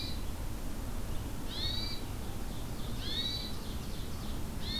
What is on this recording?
Red-eyed Vireo, Hermit Thrush, Ovenbird